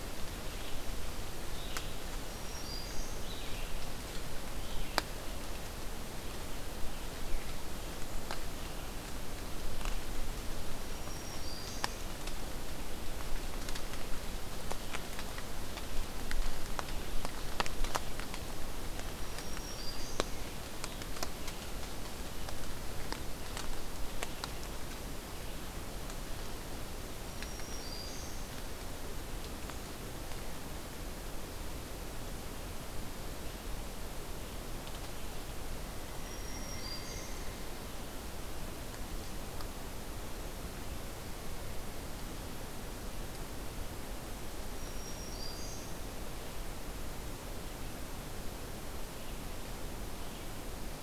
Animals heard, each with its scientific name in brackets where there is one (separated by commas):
Red-eyed Vireo (Vireo olivaceus), Black-throated Green Warbler (Setophaga virens)